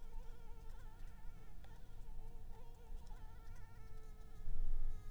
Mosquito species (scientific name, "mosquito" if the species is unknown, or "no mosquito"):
Anopheles arabiensis